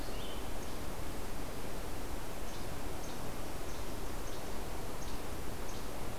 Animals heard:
Least Flycatcher (Empidonax minimus)

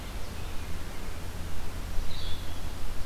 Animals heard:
Blue-headed Vireo (Vireo solitarius)
Ovenbird (Seiurus aurocapilla)
Red-eyed Vireo (Vireo olivaceus)

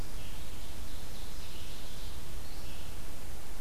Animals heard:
Ovenbird (Seiurus aurocapilla)
Red-eyed Vireo (Vireo olivaceus)

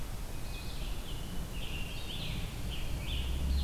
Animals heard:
Red-eyed Vireo (Vireo olivaceus)
Hermit Thrush (Catharus guttatus)
Scarlet Tanager (Piranga olivacea)

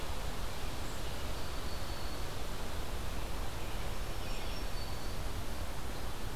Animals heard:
Black-throated Green Warbler (Setophaga virens)

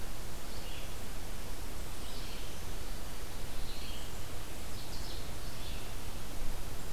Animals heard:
Red-eyed Vireo (Vireo olivaceus)

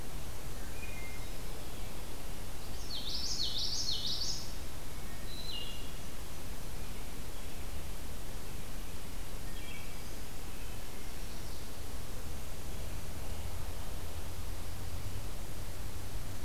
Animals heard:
Common Yellowthroat (Geothlypis trichas)
Wood Thrush (Hylocichla mustelina)
American Robin (Turdus migratorius)

